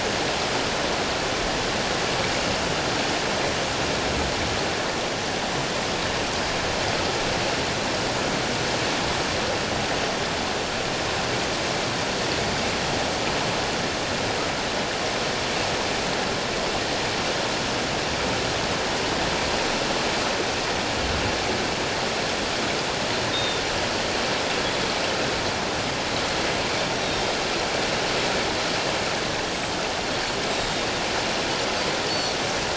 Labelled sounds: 23.3	23.6	Pacific white-sided dolphin, 3.5 to 3.8 kHz
26.9	27.2	Pacific white-sided dolphin, 3.6 to 3.9 kHz
29.5	30.8	Pacific white-sided dolphin, 3.6 to 7.9 kHz
32.1	32.4	Pacific white-sided dolphin, 4.2 to 4.6 kHz

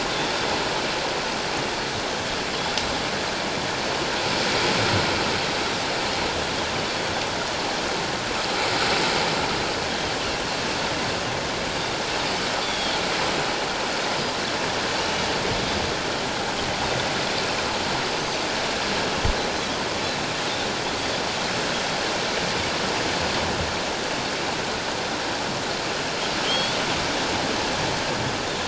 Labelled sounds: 12.6	12.9	Pacific white-sided dolphin, 3.1 to 3.6 kHz
26.5	26.8	Pacific white-sided dolphin, 3.1 to 3.5 kHz

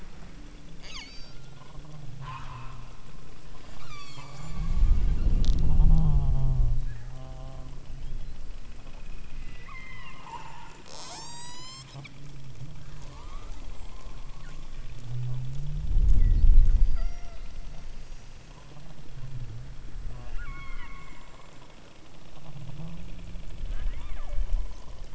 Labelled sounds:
0.7	1.5	killer whale, southern Alaska resident, 0.57 to 8.0 kHz
2.2	3.0	killer whale, southern Alaska resident, 0.68 to 8.0 kHz
3.5	5.2	killer whale, southern Alaska resident, 0.46 to 8.0 kHz
9.5	12.0	killer whale, southern Alaska resident, 0.39 to 8.0 kHz
12.9	14.0	killer whale, southern Alaska resident, 0.57 to 3.9 kHz
16.9	18.4	killer whale, southern Alaska resident, 0.52 to 8.0 kHz
20.0	21.2	killer whale, southern Alaska resident, 0.27 to 4.7 kHz
23.7	24.5	killer whale, southern Alaska resident, 0.48 to 3.8 kHz

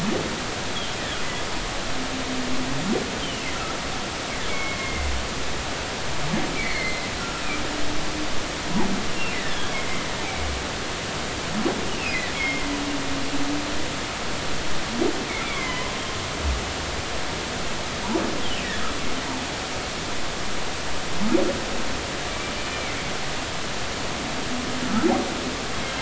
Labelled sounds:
3.2	3.8	humpback whale, 1.2 to 3.3 kHz
4.5	5.1	humpback whale, 2.0 to 2.3 kHz
6.5	7.0	humpback whale, 1.6 to 4.4 kHz
9.3	9.7	humpback whale, 1.6 to 2.1 kHz
12.0	12.7	humpback whale, 1.8 to 2.8 kHz
15.4	15.9	humpback whale, 0.96 to 2.4 kHz
22.7	23.0	humpback whale, 2.0 to 2.4 kHz

